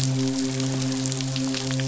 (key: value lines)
label: biophony, midshipman
recorder: SoundTrap 500